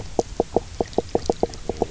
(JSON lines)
{"label": "biophony, knock croak", "recorder": "SoundTrap 300"}